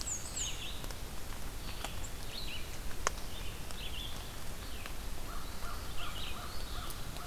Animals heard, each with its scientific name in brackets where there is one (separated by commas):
American Crow (Corvus brachyrhynchos), Black-and-white Warbler (Mniotilta varia), Red-eyed Vireo (Vireo olivaceus)